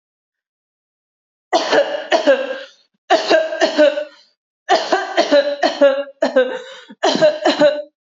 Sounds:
Cough